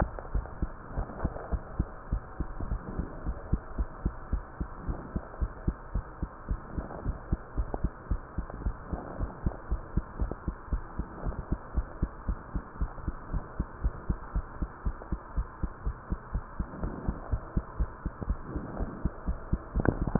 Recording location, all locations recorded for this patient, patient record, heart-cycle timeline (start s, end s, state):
mitral valve (MV)
aortic valve (AV)+pulmonary valve (PV)+tricuspid valve (TV)+mitral valve (MV)
#Age: Child
#Sex: Female
#Height: 115.0 cm
#Weight: 19.6 kg
#Pregnancy status: False
#Murmur: Absent
#Murmur locations: nan
#Most audible location: nan
#Systolic murmur timing: nan
#Systolic murmur shape: nan
#Systolic murmur grading: nan
#Systolic murmur pitch: nan
#Systolic murmur quality: nan
#Diastolic murmur timing: nan
#Diastolic murmur shape: nan
#Diastolic murmur grading: nan
#Diastolic murmur pitch: nan
#Diastolic murmur quality: nan
#Outcome: Normal
#Campaign: 2015 screening campaign
0.00	0.93	unannotated
0.93	1.02	S1
1.02	1.22	systole
1.22	1.29	S2
1.29	1.51	diastole
1.51	1.58	S1
1.58	1.78	systole
1.78	1.85	S2
1.85	2.11	diastole
2.11	2.18	S1
2.18	2.39	systole
2.39	2.44	S2
2.44	2.71	diastole
2.71	2.77	S1
2.77	2.98	systole
2.98	3.02	S2
3.02	3.26	diastole
3.26	3.32	S1
3.32	3.52	systole
3.52	3.57	S2
3.57	3.78	diastole
3.78	3.84	S1
3.84	4.04	systole
4.04	4.10	S2
4.10	4.32	diastole
4.32	4.40	S1
4.40	4.60	systole
4.60	4.66	S2
4.66	4.87	diastole
4.87	4.93	S1
4.93	5.15	systole
5.15	5.20	S2
5.20	5.40	diastole
5.40	5.47	S1
5.47	5.67	systole
5.67	5.73	S2
5.73	5.94	diastole
5.94	6.00	S1
6.00	6.22	systole
6.21	6.26	S2
6.26	6.48	diastole
6.48	6.56	S1
6.56	6.77	systole
6.77	6.82	S2
6.82	7.04	diastole
7.04	7.12	S1
7.12	7.30	systole
7.30	7.36	S2
7.36	7.57	diastole
7.57	7.63	S1
7.63	7.82	systole
7.82	7.88	S2
7.88	8.10	diastole
8.10	8.18	S1
8.18	8.37	systole
8.37	8.44	S2
8.44	8.65	diastole
8.65	8.72	S1
8.72	8.91	systole
8.91	8.96	S2
8.96	9.19	diastole
9.19	9.28	S1
9.28	9.44	systole
9.44	9.51	S2
9.51	9.71	diastole
9.71	9.77	S1
9.77	9.96	systole
9.96	10.01	S2
10.01	10.20	diastole
10.20	10.27	S1
10.27	10.47	systole
10.47	10.52	S2
10.52	10.71	diastole
10.71	10.78	S1
10.78	10.99	systole
10.99	11.03	S2
11.03	11.25	diastole
11.25	11.30	S1
11.30	11.51	systole
11.51	11.56	S2
11.56	11.76	diastole
11.76	11.82	S1
11.82	12.01	systole
12.01	12.06	S2
12.06	12.28	diastole
12.28	12.34	S1
12.34	12.55	systole
12.55	12.59	S2
12.59	12.80	diastole
12.80	12.86	S1
12.86	13.07	systole
13.07	13.11	S2
13.11	13.33	diastole
13.33	13.39	S1
13.39	13.59	systole
13.59	13.63	S2
13.64	13.84	diastole
13.84	13.90	S1
13.90	14.09	systole
14.09	14.15	S2
14.15	14.35	diastole
14.35	14.41	S1
14.41	14.62	systole
14.62	14.67	S2
14.67	14.86	diastole
14.86	14.92	S1
14.92	15.11	systole
15.11	15.17	S2
15.17	15.37	diastole
15.37	15.43	S1
15.43	15.63	systole
15.63	15.67	S2
15.67	15.87	diastole
15.87	15.92	S1
15.92	16.11	systole
16.11	16.16	S2
16.16	16.34	diastole
16.34	16.39	S1
16.39	16.40	systole
16.40	20.19	unannotated